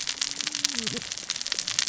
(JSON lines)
{"label": "biophony, cascading saw", "recorder": "SoundTrap 600 or HydroMoth"}